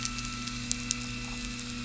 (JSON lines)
{"label": "anthrophony, boat engine", "recorder": "SoundTrap 300"}